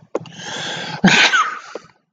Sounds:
Sneeze